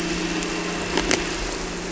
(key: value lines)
label: anthrophony, boat engine
recorder: SoundTrap 300